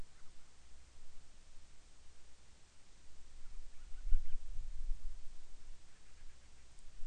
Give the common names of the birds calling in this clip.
Band-rumped Storm-Petrel